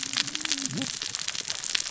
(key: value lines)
label: biophony, cascading saw
recorder: SoundTrap 600 or HydroMoth